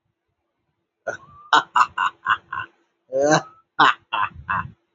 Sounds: Laughter